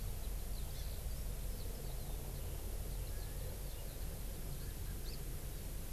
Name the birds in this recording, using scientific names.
Alauda arvensis, Chlorodrepanis virens